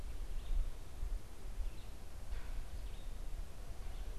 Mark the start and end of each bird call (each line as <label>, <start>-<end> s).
Red-eyed Vireo (Vireo olivaceus), 0.0-3.4 s